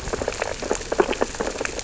{"label": "biophony, sea urchins (Echinidae)", "recorder": "SoundTrap 600 or HydroMoth"}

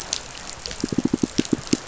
{"label": "biophony, pulse", "recorder": "SoundTrap 500"}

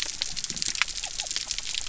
{"label": "biophony", "recorder": "SoundTrap 300"}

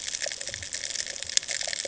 {"label": "ambient", "recorder": "HydroMoth"}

